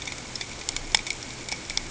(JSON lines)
{"label": "ambient", "recorder": "HydroMoth"}